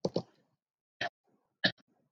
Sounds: Cough